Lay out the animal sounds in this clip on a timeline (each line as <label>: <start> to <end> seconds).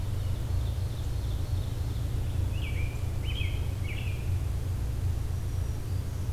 Ovenbird (Seiurus aurocapilla): 0.0 to 2.0 seconds
American Robin (Turdus migratorius): 2.4 to 4.4 seconds
Black-throated Green Warbler (Setophaga virens): 5.3 to 6.3 seconds